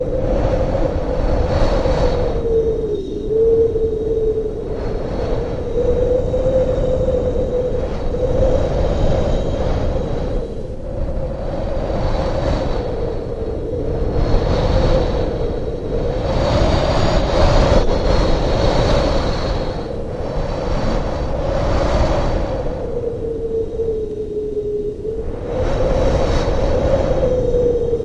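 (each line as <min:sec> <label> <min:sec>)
0:00.0 Wind blowing with repeated increasing intensity. 0:28.0
0:01.0 Wind blowing heavily with a metallic sound. 0:04.0
0:05.9 Wind blowing heavily with a metallic sound. 0:22.7
0:25.4 Wind blowing heavily with a metallic sound. 0:28.0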